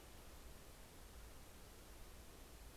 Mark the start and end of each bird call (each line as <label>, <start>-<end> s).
American Robin (Turdus migratorius), 0.0-2.8 s